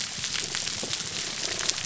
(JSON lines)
{"label": "biophony", "recorder": "SoundTrap 300"}